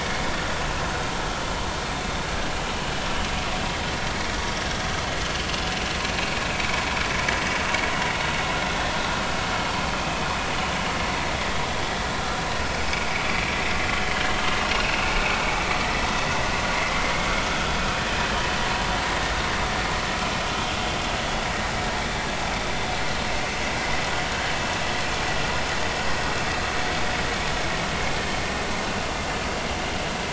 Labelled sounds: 6.2	6.4	vessel noise, 2.4 to 2.6 kHz
14.6	15.1	vessel noise, 2.4 to 2.9 kHz
16.8	17.1	vessel noise, 2.0 to 2.2 kHz

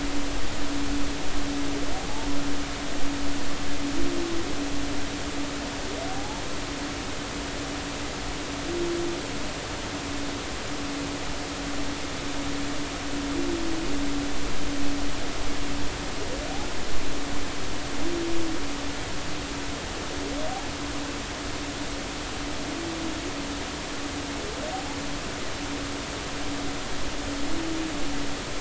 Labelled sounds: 6.1	6.4	humpback whale, 0.80 to 0.96 kHz

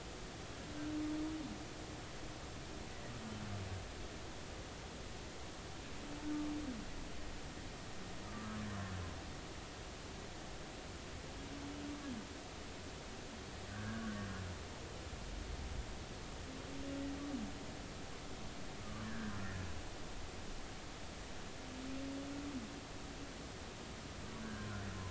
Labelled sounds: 8.2	8.6	humpback whale, 1.1 to 1.3 kHz
13.7	14.2	humpback whale, 1.4 to 1.7 kHz
18.8	19.4	humpback whale, 1.1 to 1.9 kHz
24.4	24.7	humpback whale, 1.4 to 1.7 kHz

